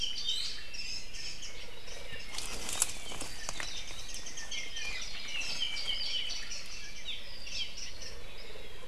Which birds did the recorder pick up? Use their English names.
Iiwi, Warbling White-eye, Apapane, Omao